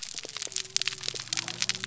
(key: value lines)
label: biophony
recorder: SoundTrap 300